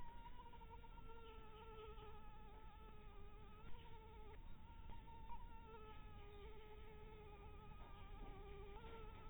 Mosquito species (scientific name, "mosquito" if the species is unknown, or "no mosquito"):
Anopheles maculatus